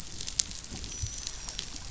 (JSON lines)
{"label": "biophony, dolphin", "recorder": "SoundTrap 500"}